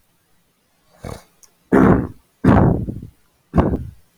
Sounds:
Throat clearing